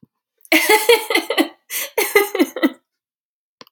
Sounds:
Laughter